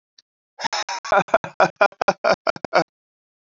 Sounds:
Laughter